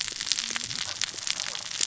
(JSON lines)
{"label": "biophony, cascading saw", "recorder": "SoundTrap 600 or HydroMoth"}